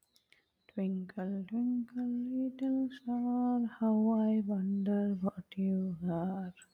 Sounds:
Sigh